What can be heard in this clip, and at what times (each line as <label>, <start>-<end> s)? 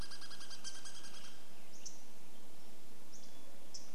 Douglas squirrel rattle, 0-2 s
unidentified bird chip note, 0-4 s
Hermit Thrush song, 2-4 s